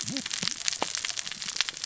{"label": "biophony, cascading saw", "recorder": "SoundTrap 600 or HydroMoth"}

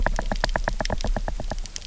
{"label": "biophony, knock", "recorder": "SoundTrap 300"}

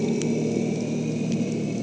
{"label": "anthrophony, boat engine", "recorder": "HydroMoth"}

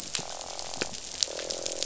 {"label": "biophony, croak", "recorder": "SoundTrap 500"}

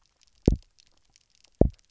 {"label": "biophony, double pulse", "recorder": "SoundTrap 300"}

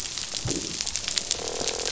{"label": "biophony, croak", "recorder": "SoundTrap 500"}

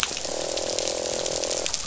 {"label": "biophony, croak", "recorder": "SoundTrap 500"}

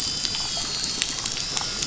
{"label": "anthrophony, boat engine", "recorder": "SoundTrap 500"}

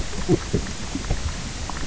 {"label": "biophony", "recorder": "SoundTrap 300"}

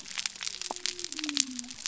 {"label": "biophony", "recorder": "SoundTrap 300"}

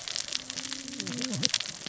{"label": "biophony, cascading saw", "recorder": "SoundTrap 600 or HydroMoth"}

